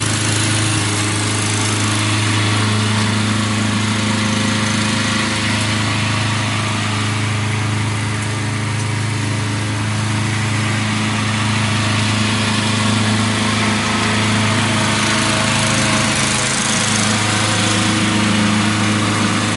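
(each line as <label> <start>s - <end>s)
A lawnmower is repeatedly mowing. 0.0s - 19.4s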